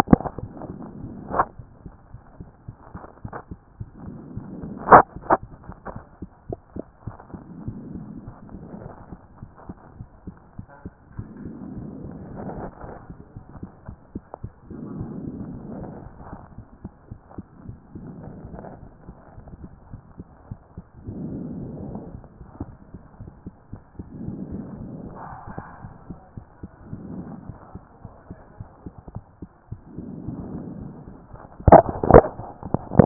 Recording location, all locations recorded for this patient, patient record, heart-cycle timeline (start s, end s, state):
mitral valve (MV)
pulmonary valve (PV)+tricuspid valve (TV)+mitral valve (MV)
#Age: Child
#Sex: Male
#Height: 151.0 cm
#Weight: 44.0 kg
#Pregnancy status: False
#Murmur: Absent
#Murmur locations: nan
#Most audible location: nan
#Systolic murmur timing: nan
#Systolic murmur shape: nan
#Systolic murmur grading: nan
#Systolic murmur pitch: nan
#Systolic murmur quality: nan
#Diastolic murmur timing: nan
#Diastolic murmur shape: nan
#Diastolic murmur grading: nan
#Diastolic murmur pitch: nan
#Diastolic murmur quality: nan
#Outcome: Normal
#Campaign: 2014 screening campaign
0.00	5.72	unannotated
5.72	5.88	diastole
5.88	6.04	S1
6.04	6.20	systole
6.20	6.30	S2
6.30	6.44	diastole
6.44	6.58	S1
6.58	6.74	systole
6.74	6.84	S2
6.84	7.02	diastole
7.02	7.16	S1
7.16	7.28	systole
7.28	7.40	S2
7.40	7.58	diastole
7.58	7.76	S1
7.76	7.92	systole
7.92	8.08	S2
8.08	8.24	diastole
8.24	8.36	S1
8.36	8.52	systole
8.52	8.64	S2
8.64	8.82	diastole
8.82	8.92	S1
8.92	9.10	systole
9.10	9.20	S2
9.20	9.40	diastole
9.40	9.50	S1
9.50	9.68	systole
9.68	9.78	S2
9.78	9.96	diastole
9.96	10.06	S1
10.06	10.22	systole
10.22	10.36	S2
10.36	10.58	diastole
10.58	10.68	S1
10.68	10.84	systole
10.84	10.94	S2
10.94	11.14	diastole
11.14	11.30	S1
11.30	11.42	systole
11.42	11.56	S2
11.56	11.76	diastole
11.76	11.94	S1
11.94	12.08	systole
12.08	12.22	S2
12.22	12.38	diastole
12.38	12.54	S1
12.54	12.62	systole
12.62	12.72	S2
12.72	12.88	diastole
12.88	12.96	S1
12.96	33.06	unannotated